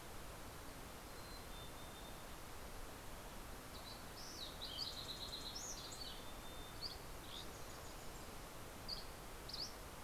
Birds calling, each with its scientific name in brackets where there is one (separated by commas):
Fox Sparrow (Passerella iliaca), Dusky Flycatcher (Empidonax oberholseri), Mountain Chickadee (Poecile gambeli)